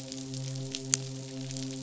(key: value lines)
label: biophony, midshipman
recorder: SoundTrap 500